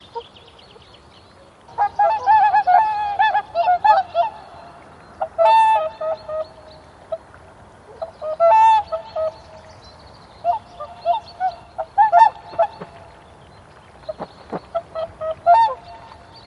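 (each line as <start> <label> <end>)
0.0 A bird chirps in the distance. 16.5
1.7 Birds singing in a natural environment. 6.6
7.9 Birds singing in a natural environment. 9.5
10.4 Birds singing in a natural environment. 13.0
13.9 Birds singing in a natural environment. 15.9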